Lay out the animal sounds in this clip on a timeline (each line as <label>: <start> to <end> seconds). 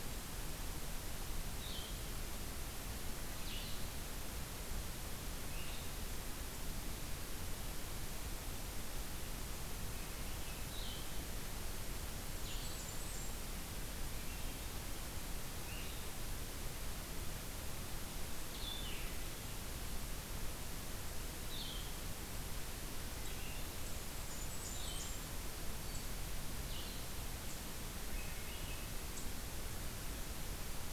Blue-headed Vireo (Vireo solitarius): 1.5 to 6.0 seconds
Swainson's Thrush (Catharus ustulatus): 9.8 to 10.7 seconds
Blue-headed Vireo (Vireo solitarius): 10.6 to 26.9 seconds
Blackburnian Warbler (Setophaga fusca): 12.4 to 13.4 seconds
Swainson's Thrush (Catharus ustulatus): 13.9 to 14.6 seconds
Swainson's Thrush (Catharus ustulatus): 22.8 to 23.8 seconds
Blackburnian Warbler (Setophaga fusca): 24.1 to 25.2 seconds
Black-throated Green Warbler (Setophaga virens): 25.8 to 26.3 seconds
Swainson's Thrush (Catharus ustulatus): 27.9 to 29.0 seconds